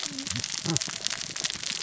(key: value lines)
label: biophony, cascading saw
recorder: SoundTrap 600 or HydroMoth